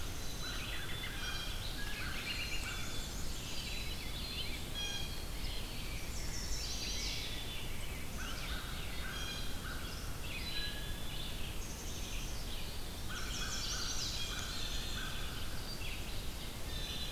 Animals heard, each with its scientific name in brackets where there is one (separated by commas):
Black-capped Chickadee (Poecile atricapillus), Chestnut-sided Warbler (Setophaga pensylvanica), Rose-breasted Grosbeak (Pheucticus ludovicianus), American Robin (Turdus migratorius), American Crow (Corvus brachyrhynchos), Red-eyed Vireo (Vireo olivaceus), Black-and-white Warbler (Mniotilta varia), Blue Jay (Cyanocitta cristata)